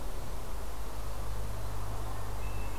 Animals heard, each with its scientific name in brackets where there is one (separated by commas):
Hermit Thrush (Catharus guttatus)